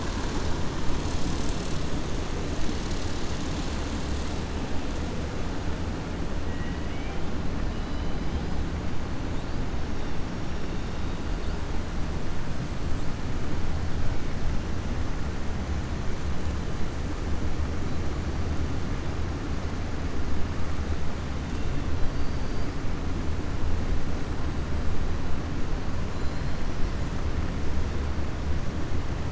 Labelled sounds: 22.0	22.7	killer whale, 4.0 to 5.5 kHz

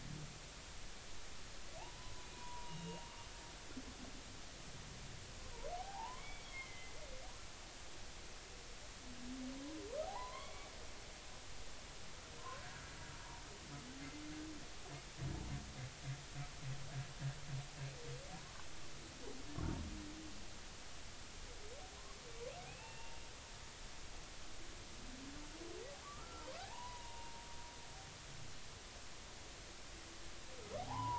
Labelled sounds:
1.8	3.0	humpback whale, 0.80 to 2.9 kHz
5.8	6.9	humpback whale, 0.80 to 3.5 kHz
10.1	10.7	humpback whale, 0.80 to 4.1 kHz
12.6	12.9	humpback whale, 1.3 to 1.8 kHz
22.7	23.1	humpback whale, 2.4 to 2.8 kHz
26.0	27.4	humpback whale, 0.80 to 1.4 kHz
30.8	31.1	humpback whale, 0.80 to 1.1 kHz

